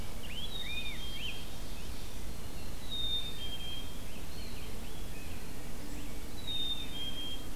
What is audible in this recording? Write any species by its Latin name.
Pheucticus ludovicianus, Poecile atricapillus, Seiurus aurocapilla, Setophaga virens